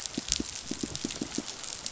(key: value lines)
label: biophony, pulse
recorder: SoundTrap 500